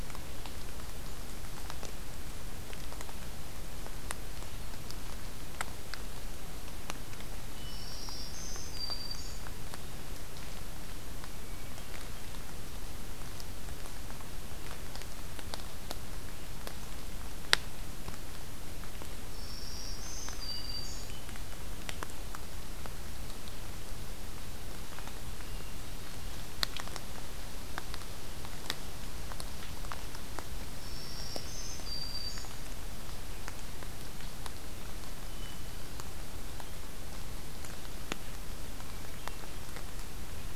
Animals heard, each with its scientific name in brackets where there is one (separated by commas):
Hermit Thrush (Catharus guttatus), Black-throated Green Warbler (Setophaga virens)